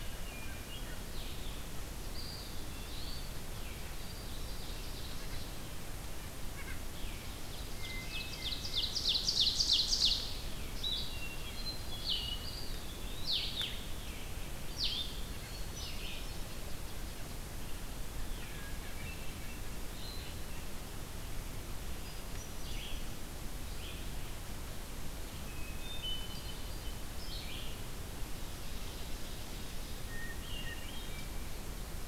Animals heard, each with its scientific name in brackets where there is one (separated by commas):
White-breasted Nuthatch (Sitta carolinensis), Blue-headed Vireo (Vireo solitarius), Eastern Wood-Pewee (Contopus virens), Ovenbird (Seiurus aurocapilla), Hermit Thrush (Catharus guttatus), Red-eyed Vireo (Vireo olivaceus)